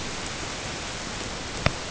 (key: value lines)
label: ambient
recorder: HydroMoth